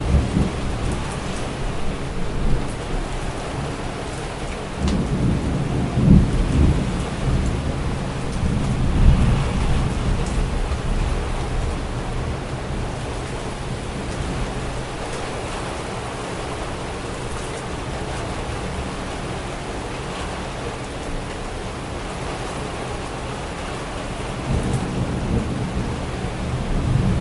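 0.0s Soft wind howls through the courtyard with occasional water dripping. 27.2s

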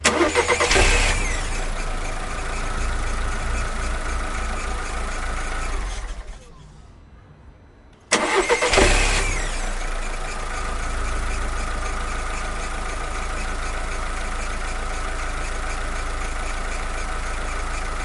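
0.0s An engine starts. 2.5s
2.5s An engine is running. 6.4s
8.1s An engine starts. 9.9s
10.0s An engine is running. 18.0s

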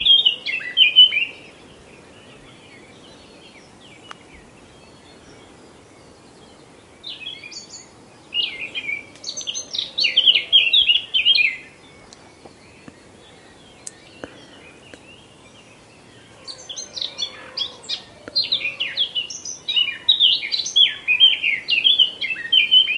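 0.0s A bird chirps a song clearly in the field. 1.4s
7.0s A bird chirps a song in the distance. 7.8s
8.3s A bird chirping a song clearly nearby. 11.6s
16.4s A bird chirping a high-pitched song. 23.0s

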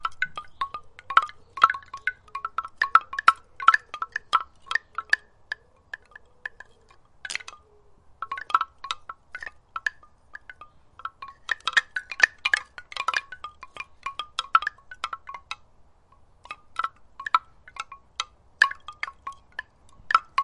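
0.0s A bamboo wind chime sways in the wind, clicking repeatedly. 1.1s
1.0s A bamboo wind chime sways in the wind and clicks repeatedly with a loud, rhythmic tone. 1.9s
1.8s A bamboo wind chime sways in the wind, clicking repeatedly. 5.3s
5.3s A bamboo wind chime sways in the wind, clicking faintly and repeatedly. 7.1s
7.2s A bamboo wind chime sways in the wind, creaking slightly. 7.6s
8.1s A bamboo wind chime sways in the wind, clicking faintly and repeatedly. 9.0s
9.1s A bamboo wind chime sways in the wind, clicking repeatedly. 10.2s
10.2s A bamboo wind chime clicks faintly and repeatedly. 11.4s
11.4s A bamboo wind chime sways in the wind, clicking repeatedly with a rhythmic tone. 12.6s
12.9s A bamboo wind chime sways in the wind, creaking slightly. 13.4s
13.4s A bamboo wind chime sways in the wind, clicking repeatedly. 15.8s
16.0s A bamboo wind chime sways and clicks faintly and repeatedly. 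17.1s
17.1s A bamboo wind chime sways in the wind and clicks once. 17.6s
17.5s A bamboo wind chime sways in the wind, clicking repeatedly. 18.5s
18.4s A bamboo wind chime sways in the wind and clicks once. 18.9s
18.7s A bamboo wind chime clicks repeatedly. 19.8s
19.9s A bamboo wind chime sways in the wind and clicks lightly once. 20.3s

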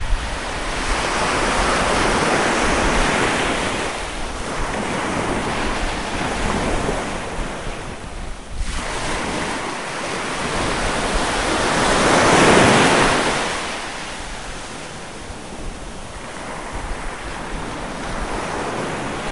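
0.0s Strong waves repeatedly lap on the shore. 14.9s
14.9s Calm waves. 19.3s

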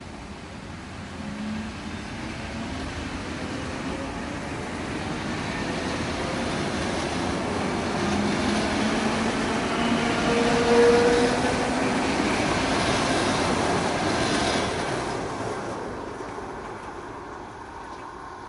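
0.0s A train is passing by. 18.5s

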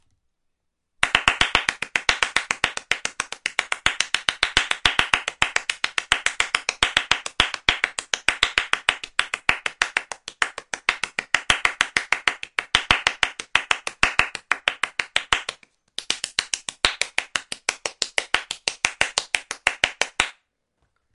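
1.0s Someone claps rapidly and rhythmically with bare hands in a dry indoor setting. 20.4s

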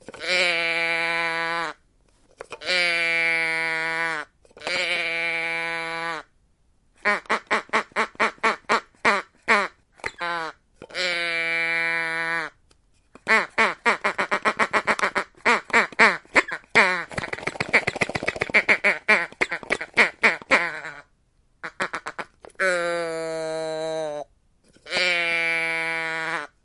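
0.0s A sheep bails loudly and repeatedly outdoors. 6.3s
7.0s Geese honk loudly and repeatedly outdoors. 10.6s
10.8s A sheep bleats loudly outdoors. 12.6s
13.2s Geese honk loudly and repeatedly outdoors. 22.4s
17.2s Geese honk and flutter loudly and repeatedly outdoors. 19.4s
22.5s A sheep bails loudly and repeatedly outdoors. 26.6s

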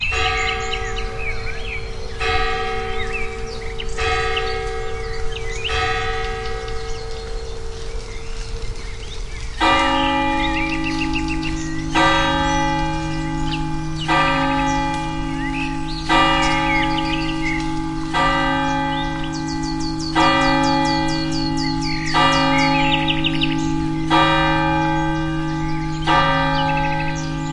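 0.0s A bell rings loudly multiple times with an echoing, distant, and fading sound. 7.4s
0.0s Distant birds singing chaotically with varying volume. 27.5s
0.0s Leaves rustling quietly in the wind at a steady volume. 27.5s
9.5s A bell rings loudly multiple times with an echoing, distant, and fading sound. 27.5s

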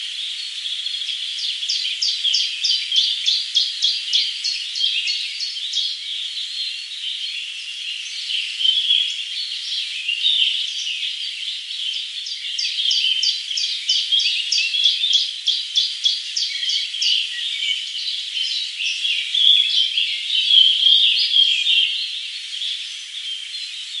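0.0s Birds chirping in nature. 24.0s
2.0s A bird chirping. 6.0s
8.6s A bird chirping. 9.0s
10.1s A bird chirps. 10.7s
13.2s A bird chirping. 17.3s
19.4s A bird chirping. 22.0s

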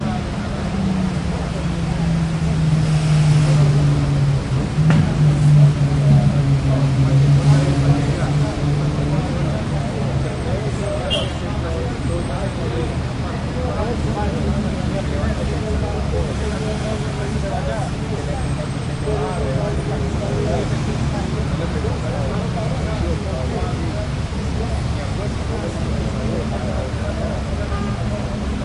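0.0s Quiet, indistinct speech of people in the distance. 6.4s
0.0s Constant loud engine noise from traffic. 28.6s
6.4s People speaking indistinctly in the distance. 28.6s

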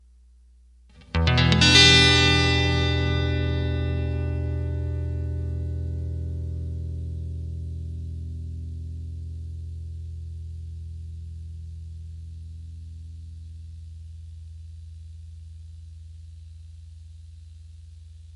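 1.2s An acoustic guitar chord is gently strummed and slowly fades. 18.4s

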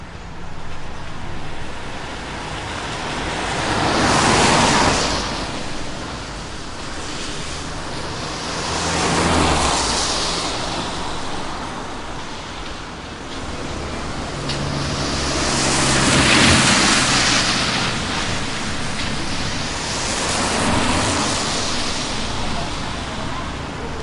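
0.0s Traffic sounds on a wet road. 24.0s
1.9s A car drives past on a wet road. 11.7s
13.9s A car drives past on a wet road. 22.9s

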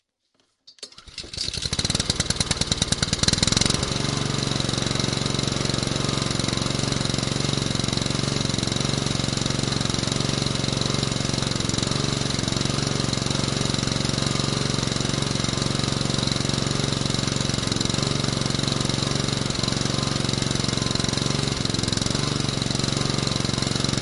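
0.1s The sound of an engine gradually starting and increasing. 3.9s
3.9s The engine runs constantly and loudly. 24.0s

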